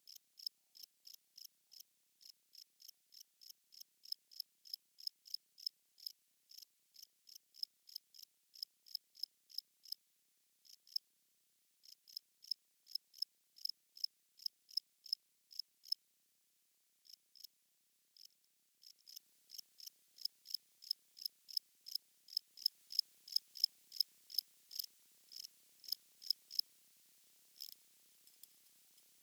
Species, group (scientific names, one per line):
Gryllus campestris
Orthoptera